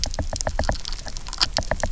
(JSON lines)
{"label": "biophony, knock", "recorder": "SoundTrap 300"}